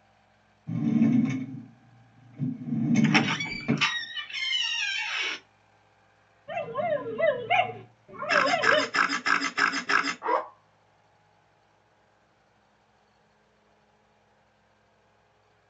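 At 0.66 seconds, a drawer opens or closes. While that goes on, at 3.01 seconds, a door is heard. Then at 6.47 seconds, a dog can be heard. Over it, at 8.28 seconds, the sound of a camera plays. Next, at 10.21 seconds, there is the sound of a zipper.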